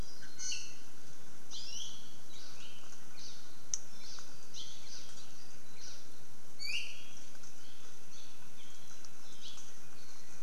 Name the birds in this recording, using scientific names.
Drepanis coccinea, Chasiempis sandwichensis, Loxops mana, Himatione sanguinea